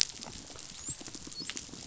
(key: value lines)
label: biophony, dolphin
recorder: SoundTrap 500